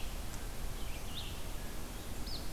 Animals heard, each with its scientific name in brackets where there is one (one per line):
Red-eyed Vireo (Vireo olivaceus)